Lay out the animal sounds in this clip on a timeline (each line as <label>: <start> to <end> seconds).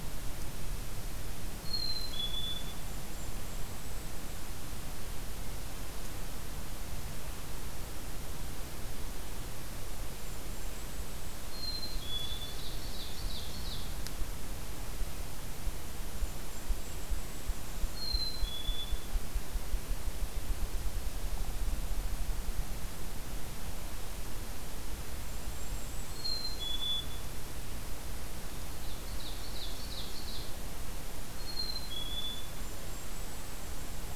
Black-capped Chickadee (Poecile atricapillus): 1.5 to 2.8 seconds
Golden-crowned Kinglet (Regulus satrapa): 2.7 to 4.4 seconds
Golden-crowned Kinglet (Regulus satrapa): 9.7 to 11.7 seconds
Black-capped Chickadee (Poecile atricapillus): 11.4 to 12.5 seconds
Ovenbird (Seiurus aurocapilla): 11.9 to 14.0 seconds
Golden-crowned Kinglet (Regulus satrapa): 15.7 to 18.0 seconds
Black-capped Chickadee (Poecile atricapillus): 17.9 to 19.1 seconds
Golden-crowned Kinglet (Regulus satrapa): 24.8 to 26.9 seconds
Black-capped Chickadee (Poecile atricapillus): 26.0 to 27.3 seconds
Ovenbird (Seiurus aurocapilla): 28.6 to 30.5 seconds
Black-capped Chickadee (Poecile atricapillus): 31.2 to 32.5 seconds
Golden-crowned Kinglet (Regulus satrapa): 32.0 to 34.2 seconds